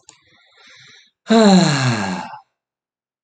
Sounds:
Sigh